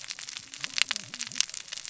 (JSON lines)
{"label": "biophony, cascading saw", "recorder": "SoundTrap 600 or HydroMoth"}